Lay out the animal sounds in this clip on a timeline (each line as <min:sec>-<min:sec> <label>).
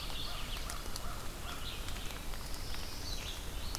0:00.0-0:00.6 Mourning Warbler (Geothlypis philadelphia)
0:00.0-0:02.5 American Crow (Corvus brachyrhynchos)
0:00.0-0:03.8 Red-eyed Vireo (Vireo olivaceus)
0:01.7-0:03.4 Black-throated Blue Warbler (Setophaga caerulescens)